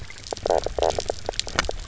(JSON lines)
{"label": "biophony, knock croak", "recorder": "SoundTrap 300"}